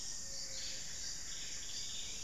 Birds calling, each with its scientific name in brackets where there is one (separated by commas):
Black-faced Antthrush (Formicarius analis), Buff-breasted Wren (Cantorchilus leucotis), unidentified bird, Ruddy Quail-Dove (Geotrygon montana)